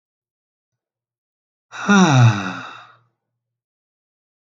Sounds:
Sigh